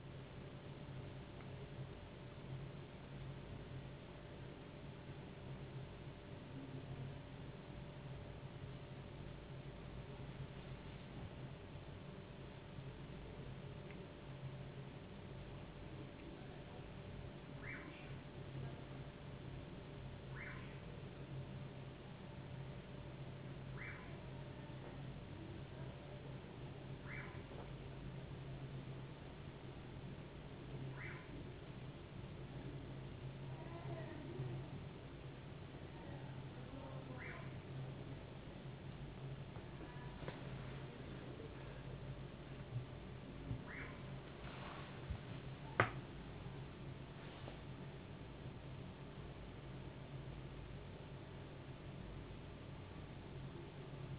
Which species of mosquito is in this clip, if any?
no mosquito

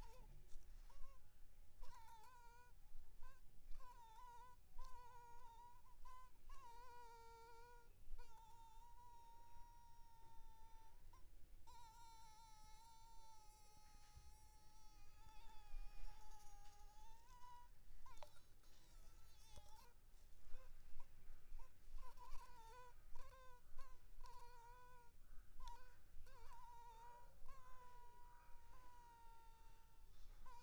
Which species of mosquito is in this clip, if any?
Anopheles arabiensis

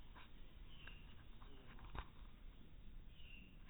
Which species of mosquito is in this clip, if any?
no mosquito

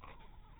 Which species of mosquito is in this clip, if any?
mosquito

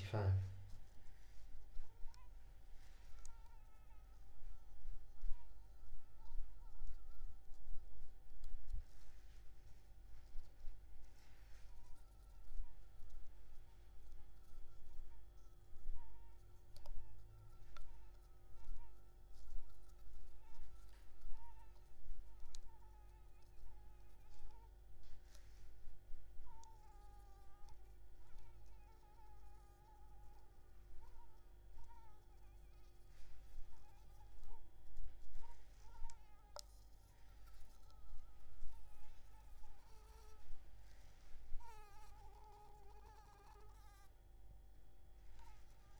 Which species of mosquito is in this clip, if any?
Anopheles maculipalpis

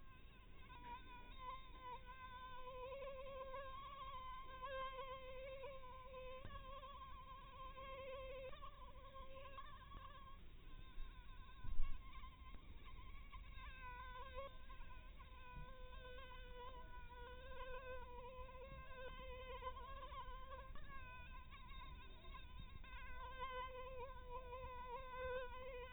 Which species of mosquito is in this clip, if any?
Anopheles maculatus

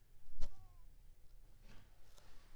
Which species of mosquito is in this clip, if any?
Anopheles squamosus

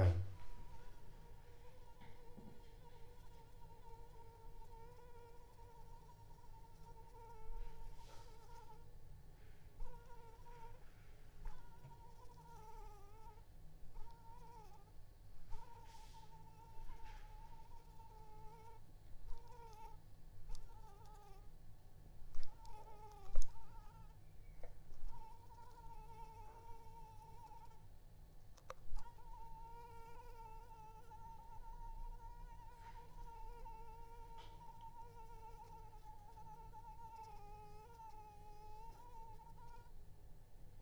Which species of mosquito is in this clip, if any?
Anopheles arabiensis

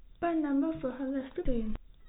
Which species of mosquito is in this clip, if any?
no mosquito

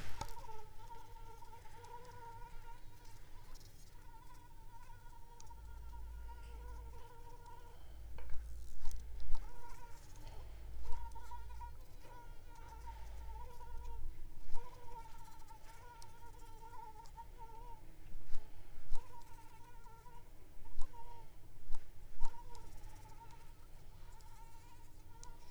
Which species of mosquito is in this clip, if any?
Anopheles arabiensis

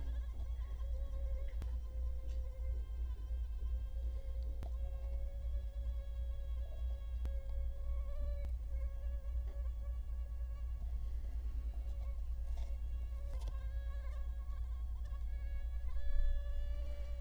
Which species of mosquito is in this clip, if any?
Culex quinquefasciatus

